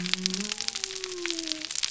{"label": "biophony", "recorder": "SoundTrap 300"}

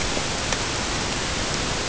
{"label": "ambient", "recorder": "HydroMoth"}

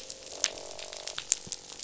{"label": "biophony, croak", "recorder": "SoundTrap 500"}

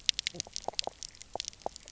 {"label": "biophony, knock croak", "recorder": "SoundTrap 300"}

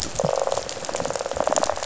{"label": "biophony", "recorder": "SoundTrap 500"}
{"label": "biophony, rattle", "recorder": "SoundTrap 500"}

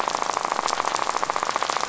{"label": "biophony, rattle", "recorder": "SoundTrap 500"}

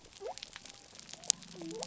{"label": "biophony", "recorder": "SoundTrap 300"}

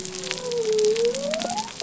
{"label": "biophony", "recorder": "SoundTrap 300"}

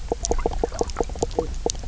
{"label": "biophony, knock croak", "recorder": "SoundTrap 300"}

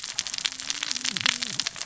{"label": "biophony, cascading saw", "recorder": "SoundTrap 600 or HydroMoth"}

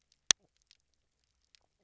{"label": "biophony, knock croak", "recorder": "SoundTrap 300"}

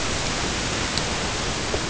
{"label": "ambient", "recorder": "HydroMoth"}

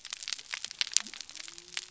{"label": "biophony", "recorder": "SoundTrap 300"}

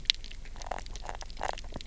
{"label": "biophony, knock croak", "recorder": "SoundTrap 300"}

